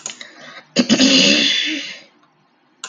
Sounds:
Throat clearing